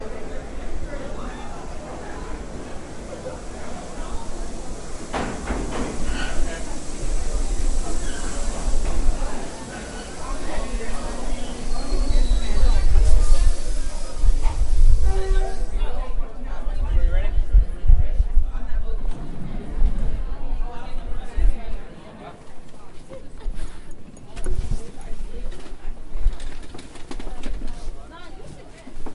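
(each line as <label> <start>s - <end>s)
People are talking in the background of a busy train station. 0.0s - 29.1s
Rustling and squeaking noises of a train arriving at a busy station. 5.1s - 9.6s
Rustling and squeaking noises of a train arriving at a busy station. 10.5s - 22.4s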